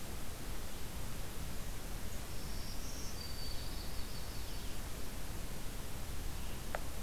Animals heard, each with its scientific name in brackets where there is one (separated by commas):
Black-throated Green Warbler (Setophaga virens), Yellow-rumped Warbler (Setophaga coronata)